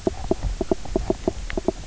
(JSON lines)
{"label": "biophony, knock croak", "recorder": "SoundTrap 300"}